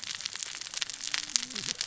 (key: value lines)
label: biophony, cascading saw
recorder: SoundTrap 600 or HydroMoth